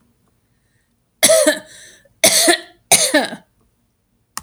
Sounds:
Cough